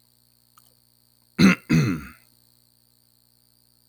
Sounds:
Throat clearing